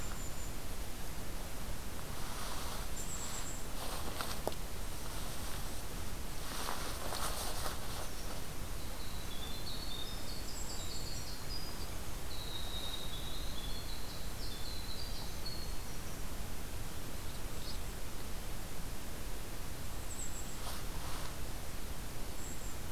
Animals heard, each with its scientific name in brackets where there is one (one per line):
Golden-crowned Kinglet (Regulus satrapa)
Winter Wren (Troglodytes hiemalis)